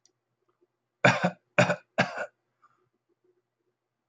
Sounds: Cough